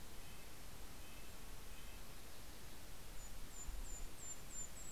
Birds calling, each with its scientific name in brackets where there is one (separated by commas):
Red-breasted Nuthatch (Sitta canadensis), Mountain Chickadee (Poecile gambeli)